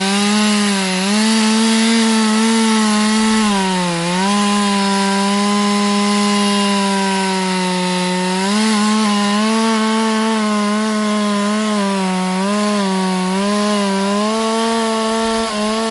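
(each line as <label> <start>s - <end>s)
An electric woodcutter is operating. 0.0s - 15.9s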